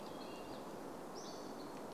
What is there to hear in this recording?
American Robin song, Hammond's Flycatcher call, Hammond's Flycatcher song